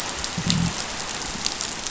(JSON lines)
{"label": "biophony, growl", "recorder": "SoundTrap 500"}